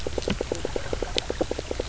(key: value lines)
label: biophony, knock croak
recorder: SoundTrap 300